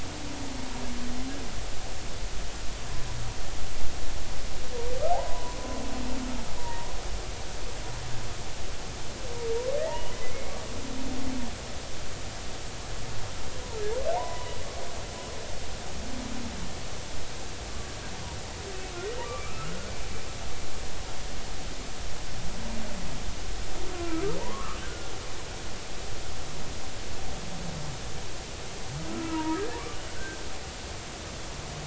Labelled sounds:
5.1	5.6	humpback whale, 0.80 to 1.1 kHz
6.6	6.9	humpback whale, 0.90 to 0.99 kHz
9.8	10.4	humpback whale, 0.83 to 3.1 kHz
14.1	14.6	humpback whale, 0.80 to 1.1 kHz
19.3	19.9	humpback whale, 1.1 to 2.4 kHz
23.9	25.1	humpback whale, 0.83 to 1.7 kHz
29.1	29.6	humpback whale, 0.90 to 1.4 kHz

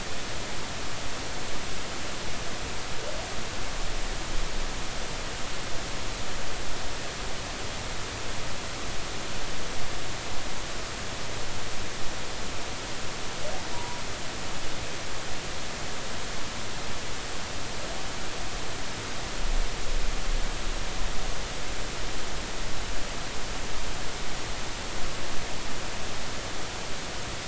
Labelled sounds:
13.7	14.0	humpback whale, 0.90 to 1.0 kHz

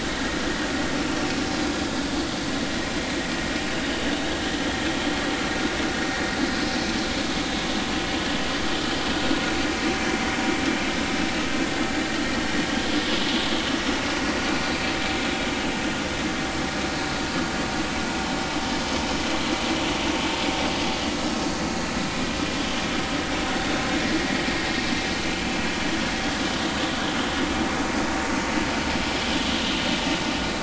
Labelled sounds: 6.5	6.7	vessel noise, 5.0 to 5.2 kHz

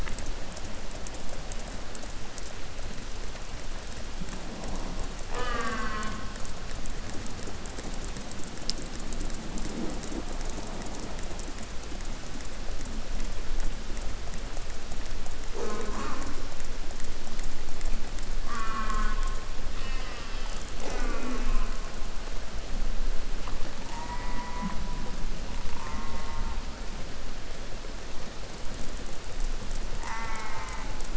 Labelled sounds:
5.3	6.4	killer whale, southern resident, J pod, call S04, 0.13 to 8.0 kHz
15.5	16.4	killer whale, southern resident, J pod, call S04, 0.17 to 8.0 kHz
18.5	22.0	killer whale, southern resident, J pod, call S04, 0.19 to 8.0 kHz
23.8	25.2	killer whale, southern resident, J pod, call S04, 0.40 to 3.2 kHz
25.4	26.6	killer whale, southern resident, J pod, call S04, 0.34 to 3.2 kHz
30.0	31.1	killer whale, southern resident, J pod, call S04, 0 to 3.0 kHz

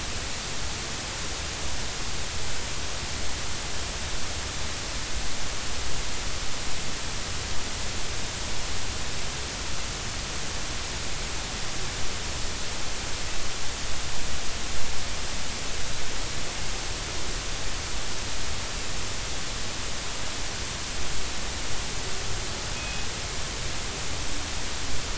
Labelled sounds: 22.8	23.1	killer whale, northern resident, G clan, call N24ii, 2.5 to 2.6 kHz

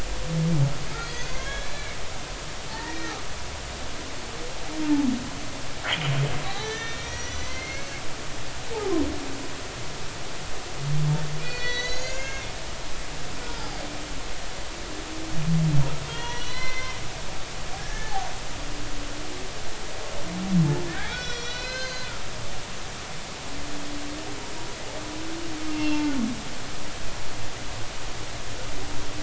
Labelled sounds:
1.0	3.2	humpback whale, 0.83 to 4.9 kHz
6.4	7.9	humpback whale, 0.80 to 6.2 kHz
11.4	12.5	humpback whale, 1.5 to 7.0 kHz
13.4	13.7	humpback whale, 1.3 to 1.5 kHz
16.1	17.0	humpback whale, 0.90 to 5.8 kHz
17.8	18.2	humpback whale, 1.6 to 1.8 kHz
21.0	22.2	humpback whale, 1.3 to 6.8 kHz
25.7	26.0	humpback whale, 2.7 to 2.8 kHz

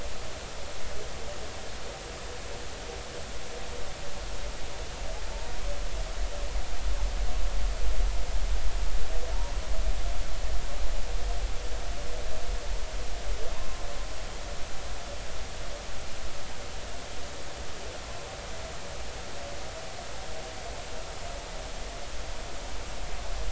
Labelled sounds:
13.5	13.8	humpback whale, 0.86 to 1.1 kHz

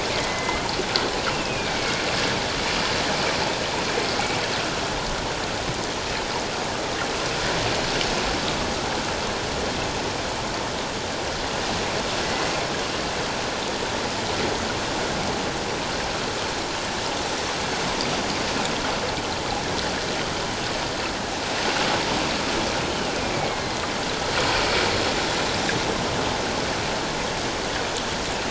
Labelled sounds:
0.1	0.7	killer whale, northern resident, A clan, AA subclan, 2.0 to 2.2 kHz
1.3	2.0	killer whale, northern resident, A clan, AA subclan, 2.1 to 3.0 kHz
12.2	12.5	killer whale, northern resident, A clan, AA subclan, 1.9 to 2.1 kHz
23.3	23.8	killer whale, northern resident, A clan, AA subclan, 2.0 to 2.3 kHz

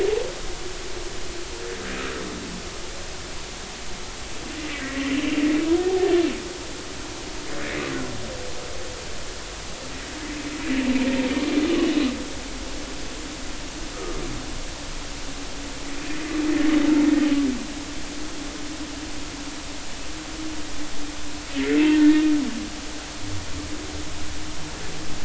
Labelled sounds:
4.6	5.3	humpback whale, 1.8 to 3.2 kHz
5.8	6.2	humpback whale, 0.80 to 1.9 kHz
21.8	22.3	humpback whale, 0.86 to 1.9 kHz

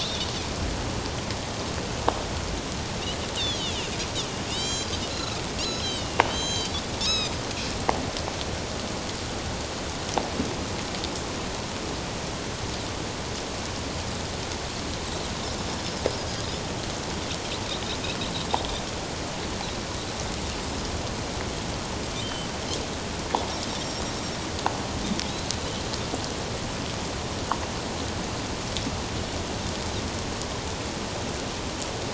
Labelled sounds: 3.4	7.3	Pacific white-sided dolphin, 2.4 to 8.0 kHz
22.2	22.5	Pacific white-sided dolphin, 3.0 to 3.2 kHz
23.8	24.0	Pacific white-sided dolphin, 5.4 to 5.7 kHz

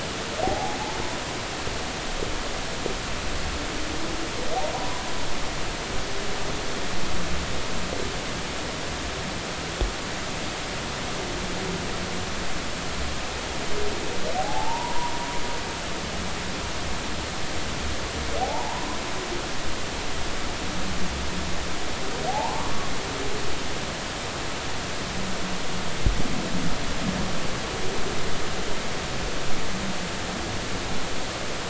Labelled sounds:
0.4	0.8	humpback whale, 0.80 to 0.90 kHz
4.7	5.0	humpback whale, 0.80 to 1.1 kHz
14.4	15.1	humpback whale, 0.80 to 1.0 kHz
18.4	18.9	humpback whale, 0.80 to 1.0 kHz
22.3	22.7	humpback whale, 0.80 to 1.2 kHz

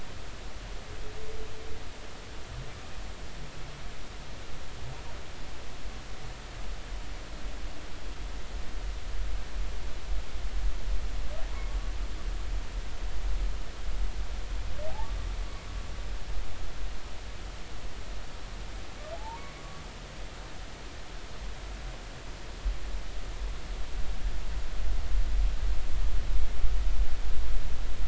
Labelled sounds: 19.1	19.5	humpback whale, 0.80 to 1.2 kHz

